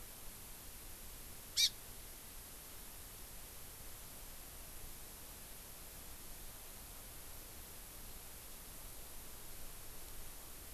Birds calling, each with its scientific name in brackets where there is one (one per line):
Hawaii Amakihi (Chlorodrepanis virens)